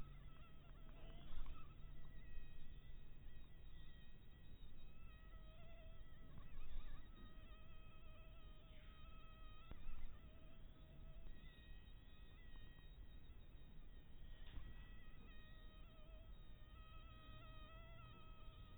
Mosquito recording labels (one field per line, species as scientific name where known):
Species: mosquito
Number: one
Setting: cup